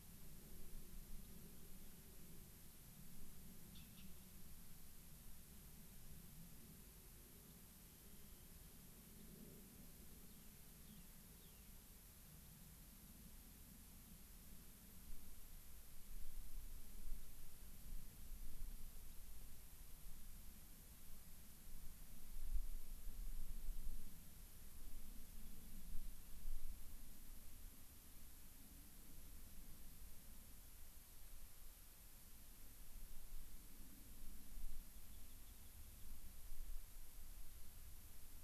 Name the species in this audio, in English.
Rock Wren, unidentified bird